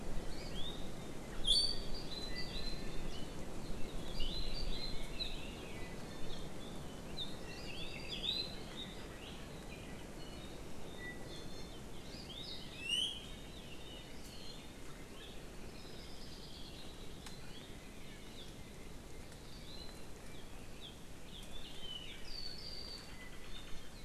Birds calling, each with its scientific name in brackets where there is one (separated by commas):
Hawaii Creeper (Loxops mana), Iiwi (Drepanis coccinea), Apapane (Himatione sanguinea)